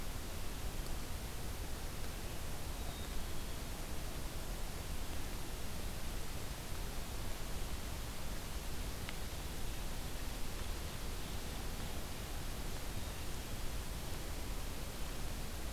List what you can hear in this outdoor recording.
Black-capped Chickadee, Ovenbird